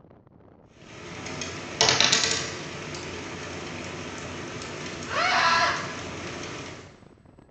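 From 0.59 to 6.98 seconds, quiet rain can be heard throughout, fading in and fading out. Meanwhile, at 1.79 seconds, a coin drops. Later, at 5.04 seconds, someone screams. A faint continuous noise remains about 35 decibels below the sounds.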